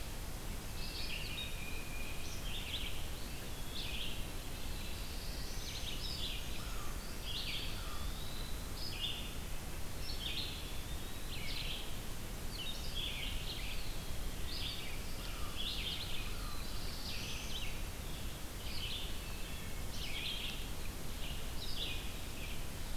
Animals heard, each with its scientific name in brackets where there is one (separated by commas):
Black-throated Blue Warbler (Setophaga caerulescens), Brown Creeper (Certhia americana), Eastern Wood-Pewee (Contopus virens), Wood Thrush (Hylocichla mustelina), Tufted Titmouse (Baeolophus bicolor), American Crow (Corvus brachyrhynchos), Red-eyed Vireo (Vireo olivaceus)